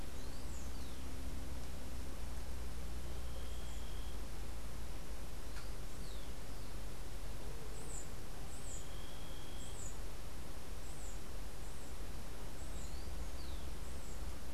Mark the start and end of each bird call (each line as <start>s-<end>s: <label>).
0.0s-1.2s: Rufous-collared Sparrow (Zonotrichia capensis)
5.3s-6.7s: Rufous-collared Sparrow (Zonotrichia capensis)
7.6s-14.5s: unidentified bird
12.6s-13.8s: Rufous-collared Sparrow (Zonotrichia capensis)